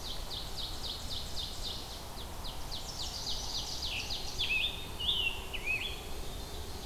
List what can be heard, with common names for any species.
Ovenbird, Chestnut-sided Warbler, Scarlet Tanager, Black-capped Chickadee